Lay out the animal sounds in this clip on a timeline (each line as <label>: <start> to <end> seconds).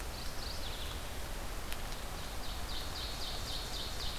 Mourning Warbler (Geothlypis philadelphia): 0.0 to 1.2 seconds
Ovenbird (Seiurus aurocapilla): 2.1 to 4.2 seconds